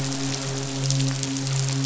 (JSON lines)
{"label": "biophony, midshipman", "recorder": "SoundTrap 500"}